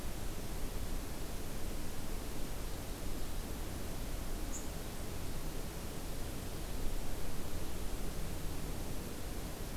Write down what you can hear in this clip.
unidentified call